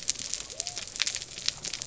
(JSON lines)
{"label": "biophony", "recorder": "SoundTrap 300"}